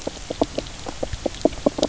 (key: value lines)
label: biophony, knock croak
recorder: SoundTrap 300